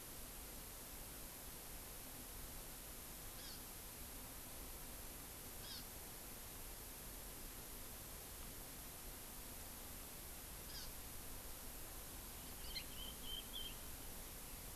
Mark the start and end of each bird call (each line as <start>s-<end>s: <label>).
3.3s-3.7s: Hawaii Amakihi (Chlorodrepanis virens)
5.5s-5.9s: Hawaii Amakihi (Chlorodrepanis virens)
10.6s-10.9s: Hawaii Amakihi (Chlorodrepanis virens)
12.5s-12.9s: Yellow-fronted Canary (Crithagra mozambica)
12.5s-14.0s: Chinese Hwamei (Garrulax canorus)